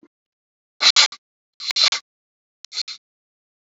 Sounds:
Sniff